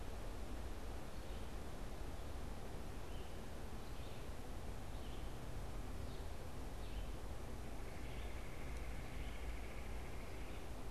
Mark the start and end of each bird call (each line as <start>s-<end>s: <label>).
1.2s-10.9s: Red-eyed Vireo (Vireo olivaceus)
7.6s-10.8s: Red-bellied Woodpecker (Melanerpes carolinus)